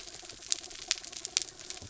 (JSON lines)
{"label": "anthrophony, mechanical", "recorder": "SoundTrap 300"}